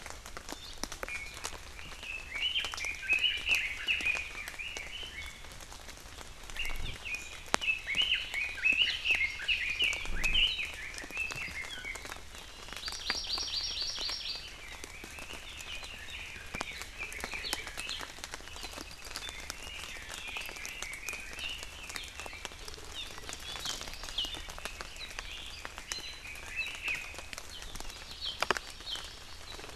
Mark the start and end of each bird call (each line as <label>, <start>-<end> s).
Iiwi (Drepanis coccinea), 1.1-1.4 s
Red-billed Leiothrix (Leiothrix lutea), 1.8-5.5 s
Red-billed Leiothrix (Leiothrix lutea), 6.6-12.1 s
Hawaii Amakihi (Chlorodrepanis virens), 8.4-9.9 s
Hawaii Amakihi (Chlorodrepanis virens), 12.4-14.6 s
Red-billed Leiothrix (Leiothrix lutea), 14.9-17.7 s
Apapane (Himatione sanguinea), 18.5-19.3 s
Red-billed Leiothrix (Leiothrix lutea), 19.2-22.6 s
Hawaii Amakihi (Chlorodrepanis virens), 22.9-23.1 s
Hawaii Amakihi (Chlorodrepanis virens), 23.6-23.8 s
Hawaii Amakihi (Chlorodrepanis virens), 25.9-26.3 s
Red-billed Leiothrix (Leiothrix lutea), 26.3-27.3 s
Hawaii Amakihi (Chlorodrepanis virens), 27.8-29.7 s